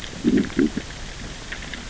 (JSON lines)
{"label": "biophony, growl", "recorder": "SoundTrap 600 or HydroMoth"}